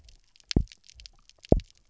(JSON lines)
{"label": "biophony, double pulse", "recorder": "SoundTrap 300"}